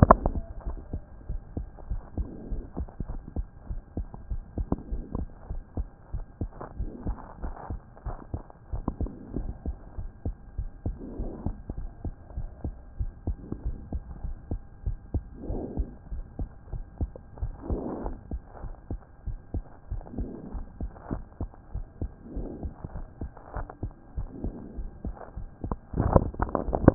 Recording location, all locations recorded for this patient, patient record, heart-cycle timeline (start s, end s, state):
pulmonary valve (PV)
aortic valve (AV)+pulmonary valve (PV)+tricuspid valve (TV)+mitral valve (MV)
#Age: Child
#Sex: Male
#Height: 99.0 cm
#Weight: 13.6 kg
#Pregnancy status: False
#Murmur: Absent
#Murmur locations: nan
#Most audible location: nan
#Systolic murmur timing: nan
#Systolic murmur shape: nan
#Systolic murmur grading: nan
#Systolic murmur pitch: nan
#Systolic murmur quality: nan
#Diastolic murmur timing: nan
#Diastolic murmur shape: nan
#Diastolic murmur grading: nan
#Diastolic murmur pitch: nan
#Diastolic murmur quality: nan
#Outcome: Normal
#Campaign: 2014 screening campaign
0.00	0.54	unannotated
0.54	0.66	diastole
0.66	0.78	S1
0.78	0.92	systole
0.92	1.02	S2
1.02	1.28	diastole
1.28	1.40	S1
1.40	1.56	systole
1.56	1.66	S2
1.66	1.90	diastole
1.90	2.02	S1
2.02	2.16	systole
2.16	2.28	S2
2.28	2.50	diastole
2.50	2.62	S1
2.62	2.78	systole
2.78	2.88	S2
2.88	3.10	diastole
3.10	3.20	S1
3.20	3.36	systole
3.36	3.46	S2
3.46	3.70	diastole
3.70	3.80	S1
3.80	3.96	systole
3.96	4.06	S2
4.06	4.30	diastole
4.30	4.42	S1
4.42	4.56	systole
4.56	4.66	S2
4.66	4.92	diastole
4.92	5.04	S1
5.04	5.16	systole
5.16	5.28	S2
5.28	5.50	diastole
5.50	5.62	S1
5.62	5.76	systole
5.76	5.88	S2
5.88	6.14	diastole
6.14	6.24	S1
6.24	6.40	systole
6.40	6.50	S2
6.50	6.78	diastole
6.78	6.90	S1
6.90	7.06	systole
7.06	7.16	S2
7.16	7.42	diastole
7.42	7.54	S1
7.54	7.70	systole
7.70	7.80	S2
7.80	8.06	diastole
8.06	8.16	S1
8.16	8.32	systole
8.32	8.42	S2
8.42	8.72	diastole
8.72	8.84	S1
8.84	9.00	systole
9.00	9.10	S2
9.10	9.36	diastole
9.36	9.50	S1
9.50	9.66	systole
9.66	9.76	S2
9.76	9.98	diastole
9.98	10.10	S1
10.10	10.26	systole
10.26	10.34	S2
10.34	10.58	diastole
10.58	10.70	S1
10.70	10.86	systole
10.86	10.96	S2
10.96	11.18	diastole
11.18	11.30	S1
11.30	11.44	systole
11.44	11.56	S2
11.56	11.78	diastole
11.78	11.90	S1
11.90	12.04	systole
12.04	12.14	S2
12.14	12.36	diastole
12.36	12.48	S1
12.48	12.64	systole
12.64	12.74	S2
12.74	13.00	diastole
13.00	13.12	S1
13.12	13.26	systole
13.26	13.36	S2
13.36	13.64	diastole
13.64	13.76	S1
13.76	13.92	systole
13.92	14.02	S2
14.02	14.24	diastole
14.24	14.36	S1
14.36	14.50	systole
14.50	14.60	S2
14.60	14.86	diastole
14.86	14.98	S1
14.98	15.14	systole
15.14	15.24	S2
15.24	15.48	diastole
15.48	15.62	S1
15.62	15.76	systole
15.76	15.88	S2
15.88	16.12	diastole
16.12	16.24	S1
16.24	16.38	systole
16.38	16.48	S2
16.48	16.72	diastole
16.72	16.84	S1
16.84	17.00	systole
17.00	17.10	S2
17.10	17.42	diastole
17.42	17.54	S1
17.54	17.68	systole
17.68	17.80	S2
17.80	18.04	diastole
18.04	18.16	S1
18.16	18.32	systole
18.32	18.42	S2
18.42	18.64	diastole
18.64	18.74	S1
18.74	18.90	systole
18.90	19.00	S2
19.00	19.26	diastole
19.26	19.38	S1
19.38	19.54	systole
19.54	19.64	S2
19.64	19.92	diastole
19.92	20.02	S1
20.02	20.18	systole
20.18	20.28	S2
20.28	20.54	diastole
20.54	20.66	S1
20.66	20.80	systole
20.80	20.90	S2
20.90	21.12	diastole
21.12	21.22	S1
21.22	21.40	systole
21.40	21.50	S2
21.50	21.74	diastole
21.74	21.86	S1
21.86	22.00	systole
22.00	22.10	S2
22.10	22.36	diastole
22.36	22.48	S1
22.48	22.62	systole
22.62	22.72	S2
22.72	22.94	diastole
22.94	23.06	S1
23.06	23.20	systole
23.20	23.30	S2
23.30	23.56	diastole
23.56	23.68	S1
23.68	23.82	systole
23.82	23.92	S2
23.92	24.16	diastole
24.16	24.28	S1
24.28	24.42	systole
24.42	24.52	S2
24.52	24.78	diastole
24.78	24.90	S1
24.90	25.04	systole
25.04	25.16	S2
25.16	25.38	diastole
25.38	25.48	S1
25.48	25.64	systole
25.64	25.76	S2
25.76	25.96	diastole
25.96	26.94	unannotated